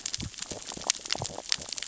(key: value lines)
label: biophony, sea urchins (Echinidae)
recorder: SoundTrap 600 or HydroMoth